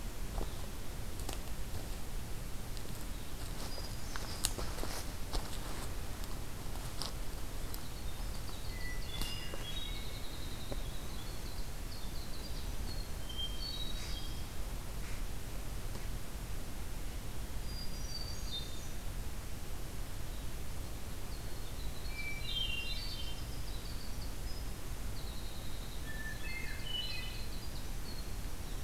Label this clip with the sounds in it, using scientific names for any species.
Catharus guttatus, Troglodytes hiemalis